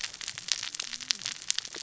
{"label": "biophony, cascading saw", "recorder": "SoundTrap 600 or HydroMoth"}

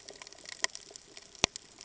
{"label": "ambient", "recorder": "HydroMoth"}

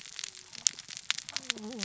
{"label": "biophony, cascading saw", "recorder": "SoundTrap 600 or HydroMoth"}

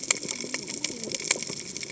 {"label": "biophony, cascading saw", "recorder": "HydroMoth"}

